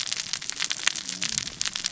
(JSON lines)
{"label": "biophony, cascading saw", "recorder": "SoundTrap 600 or HydroMoth"}